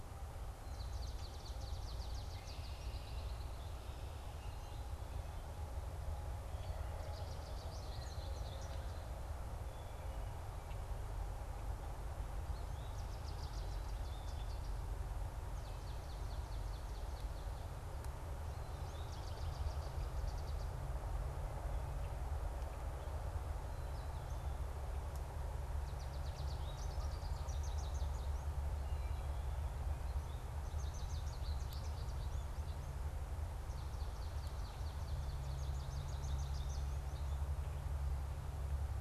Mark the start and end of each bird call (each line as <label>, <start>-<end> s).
American Goldfinch (Spinus tristis), 0.0-3.9 s
Swamp Sparrow (Melospiza georgiana), 0.5-3.4 s
American Goldfinch (Spinus tristis), 7.0-9.1 s
American Goldfinch (Spinus tristis), 12.3-15.0 s
Swamp Sparrow (Melospiza georgiana), 15.4-17.7 s
American Goldfinch (Spinus tristis), 18.6-20.9 s
American Goldfinch (Spinus tristis), 25.7-29.0 s
American Goldfinch (Spinus tristis), 30.3-32.9 s
Swamp Sparrow (Melospiza georgiana), 33.6-36.4 s
American Goldfinch (Spinus tristis), 35.0-37.8 s